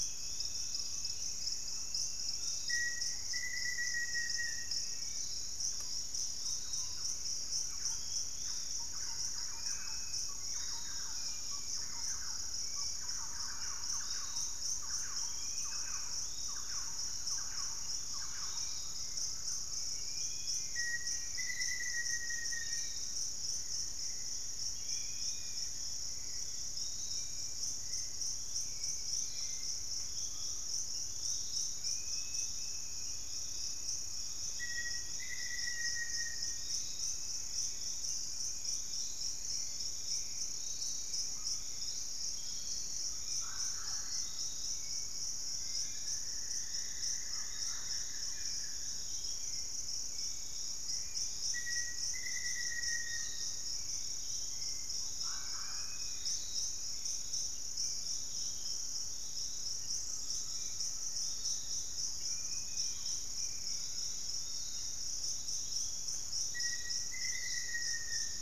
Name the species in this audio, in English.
Dusky-capped Flycatcher, Piratic Flycatcher, Dusky-capped Greenlet, Black-faced Antthrush, Thrush-like Wren, Hauxwell's Thrush, Undulated Tinamou, Plain-winged Antshrike, unidentified bird, Mealy Parrot, Buff-throated Woodcreeper, Black-tailed Trogon